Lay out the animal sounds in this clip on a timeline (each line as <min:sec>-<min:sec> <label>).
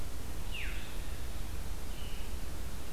0:00.0-0:02.9 Red-eyed Vireo (Vireo olivaceus)
0:00.4-0:00.8 Veery (Catharus fuscescens)